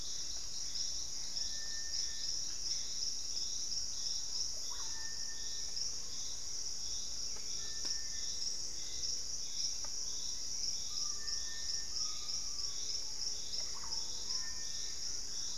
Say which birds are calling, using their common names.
Hauxwell's Thrush, Gray Antbird, Russet-backed Oropendola, Collared Trogon, Purple-throated Fruitcrow, Screaming Piha, Thrush-like Wren